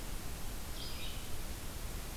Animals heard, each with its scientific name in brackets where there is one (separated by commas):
Red-eyed Vireo (Vireo olivaceus)